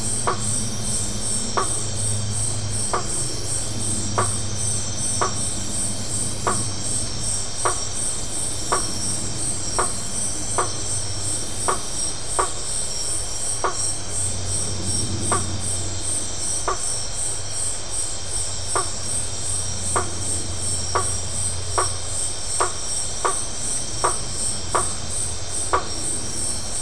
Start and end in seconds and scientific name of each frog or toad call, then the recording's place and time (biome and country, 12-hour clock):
0.2	26.8	Boana faber
Atlantic Forest, Brazil, 8:30pm